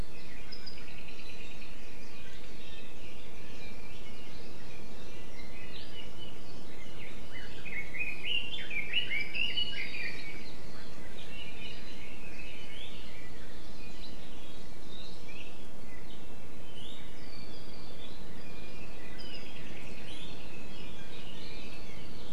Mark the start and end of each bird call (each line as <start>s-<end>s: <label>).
2.5s-3.0s: Iiwi (Drepanis coccinea)
7.2s-10.4s: Red-billed Leiothrix (Leiothrix lutea)
10.9s-13.3s: Red-billed Leiothrix (Leiothrix lutea)
17.1s-18.0s: Hawaii Creeper (Loxops mana)
18.3s-18.9s: Iiwi (Drepanis coccinea)
19.1s-20.0s: Apapane (Himatione sanguinea)